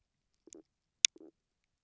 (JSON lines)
{"label": "biophony, stridulation", "recorder": "SoundTrap 300"}